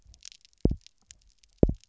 {"label": "biophony, double pulse", "recorder": "SoundTrap 300"}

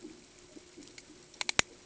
{"label": "ambient", "recorder": "HydroMoth"}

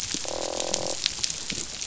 {"label": "biophony, croak", "recorder": "SoundTrap 500"}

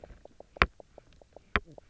{"label": "biophony, knock croak", "recorder": "SoundTrap 300"}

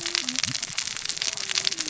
{"label": "biophony, cascading saw", "recorder": "SoundTrap 600 or HydroMoth"}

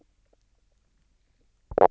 {"label": "biophony, knock croak", "recorder": "SoundTrap 300"}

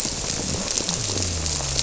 {"label": "biophony", "recorder": "SoundTrap 300"}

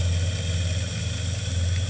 {"label": "anthrophony, boat engine", "recorder": "HydroMoth"}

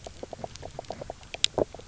{"label": "biophony, knock croak", "recorder": "SoundTrap 300"}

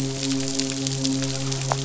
{"label": "biophony, midshipman", "recorder": "SoundTrap 500"}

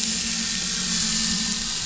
{"label": "anthrophony, boat engine", "recorder": "SoundTrap 500"}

